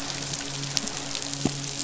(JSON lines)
{"label": "biophony, midshipman", "recorder": "SoundTrap 500"}